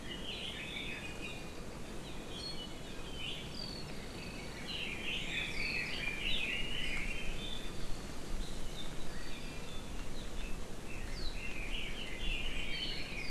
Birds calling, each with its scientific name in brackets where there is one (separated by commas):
Iiwi (Drepanis coccinea), Red-billed Leiothrix (Leiothrix lutea)